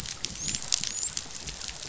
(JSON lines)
{"label": "biophony, dolphin", "recorder": "SoundTrap 500"}